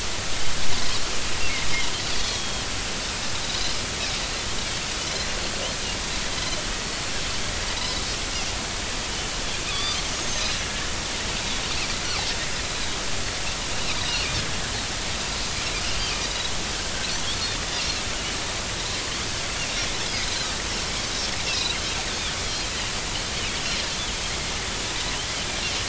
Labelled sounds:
2.2	2.7	Pacific white-sided dolphin, 3.1 to 3.3 kHz
3.4	3.8	Pacific white-sided dolphin, 3.7 to 4.2 kHz
5.0	5.2	Pacific white-sided dolphin, 2.9 to 3.2 kHz
7.8	8.2	Pacific white-sided dolphin, 3.7 to 4.2 kHz
9.7	10.8	Pacific white-sided dolphin, 1.1 to 6.7 kHz
20.2	20.5	Pacific white-sided dolphin, 3.6 to 4.3 kHz
21.4	21.8	Pacific white-sided dolphin, 2.4 to 2.8 kHz

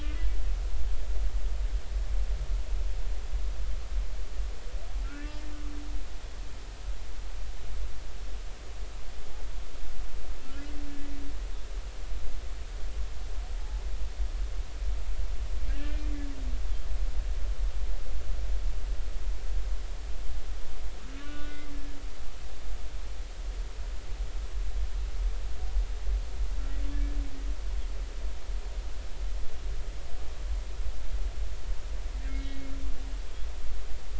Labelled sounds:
0.9	1.2	humpback whale, 1.6 to 1.8 kHz
5.0	5.4	humpback whale, 1.3 to 2.8 kHz
10.5	10.7	humpback whale, 1.3 to 1.5 kHz
13.6	13.8	humpback whale, 0.80 to 0.90 kHz
15.7	16.1	humpback whale, 1.5 to 2.4 kHz
21.1	21.6	humpback whale, 1.1 to 3.0 kHz
26.9	27.2	humpback whale, 1.7 to 1.8 kHz
32.3	32.7	humpback whale, 2.1 to 3.9 kHz

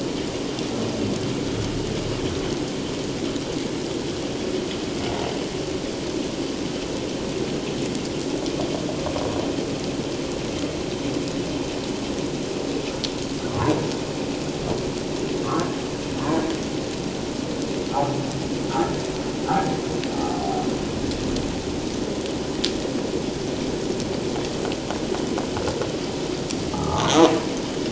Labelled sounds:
15.4	15.7	humpback whale, 1.0 to 1.4 kHz
26.7	27.1	humpback whale, 1.0 to 1.3 kHz

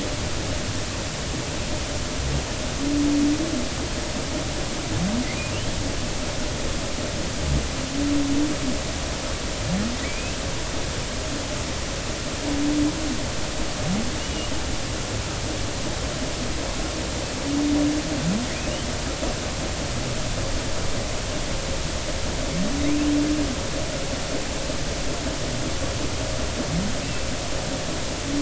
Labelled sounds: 10.0	10.4	humpback whale, 2.1 to 2.8 kHz
14.2	14.5	humpback whale, 2.8 to 3.0 kHz
27.0	27.3	humpback whale, 2.6 to 2.8 kHz

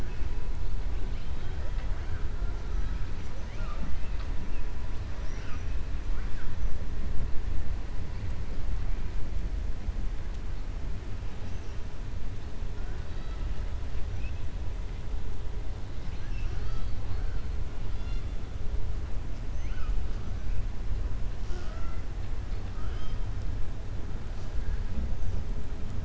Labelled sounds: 15.9	17.3	killer whale, 0.83 to 6.0 kHz
22.7	23.2	killer whale, 0.90 to 6.4 kHz

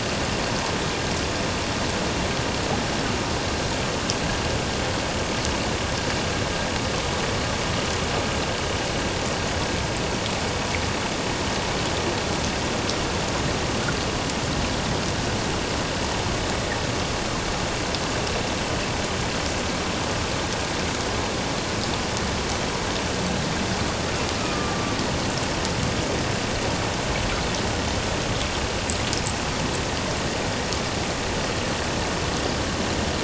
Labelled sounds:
24.4	25.0	killer whale, northern resident, A clan, AA subclan, call N04, 1.1 to 1.3 kHz

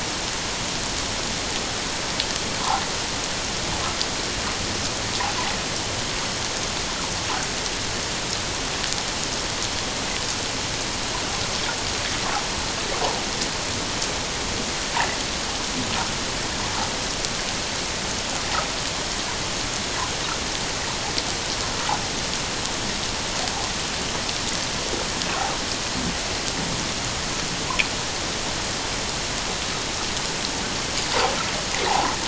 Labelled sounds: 31.8	32.1	water noise, 0.78 to 1.1 kHz

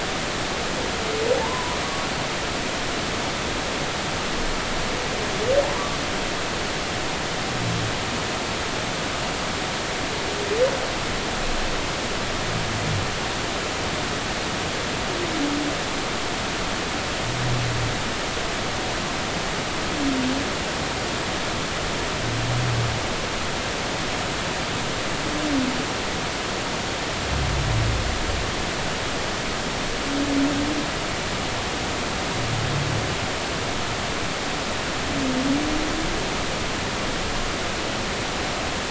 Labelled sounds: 1.4	1.8	humpback whale, 0.80 to 1.1 kHz

